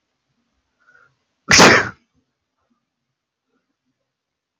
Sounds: Sneeze